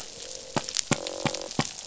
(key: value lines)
label: biophony, croak
recorder: SoundTrap 500